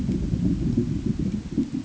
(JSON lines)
{"label": "ambient", "recorder": "HydroMoth"}